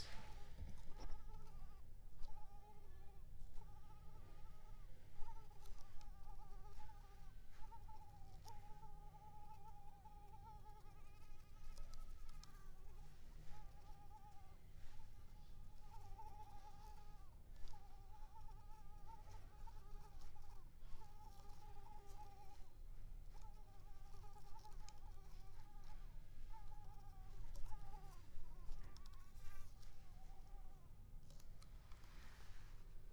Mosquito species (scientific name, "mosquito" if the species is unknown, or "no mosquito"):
Culex pipiens complex